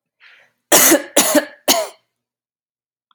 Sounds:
Cough